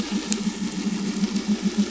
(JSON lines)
{"label": "anthrophony, boat engine", "recorder": "SoundTrap 500"}